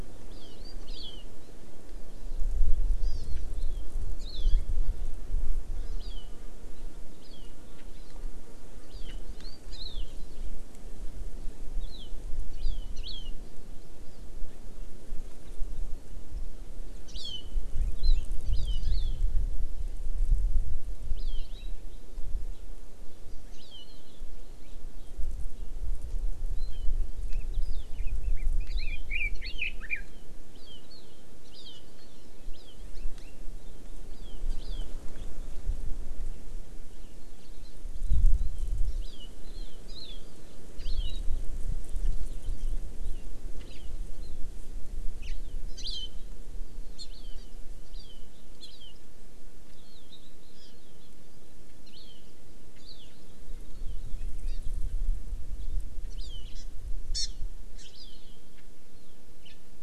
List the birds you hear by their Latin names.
Chlorodrepanis virens, Leiothrix lutea